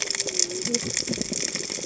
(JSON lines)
{"label": "biophony, cascading saw", "recorder": "HydroMoth"}